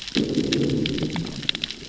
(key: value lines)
label: biophony, growl
recorder: SoundTrap 600 or HydroMoth